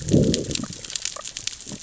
{"label": "biophony, growl", "recorder": "SoundTrap 600 or HydroMoth"}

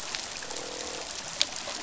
{"label": "biophony, croak", "recorder": "SoundTrap 500"}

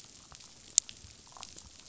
{"label": "biophony, damselfish", "recorder": "SoundTrap 500"}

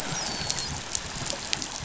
{"label": "biophony, dolphin", "recorder": "SoundTrap 500"}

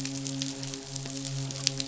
{"label": "biophony, midshipman", "recorder": "SoundTrap 500"}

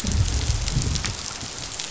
{"label": "biophony, growl", "recorder": "SoundTrap 500"}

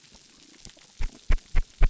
{"label": "biophony", "recorder": "SoundTrap 300"}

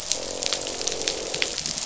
{"label": "biophony, croak", "recorder": "SoundTrap 500"}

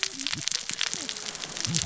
{"label": "biophony, cascading saw", "recorder": "SoundTrap 600 or HydroMoth"}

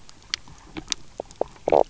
{"label": "biophony, knock croak", "recorder": "SoundTrap 300"}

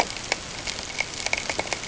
{"label": "ambient", "recorder": "HydroMoth"}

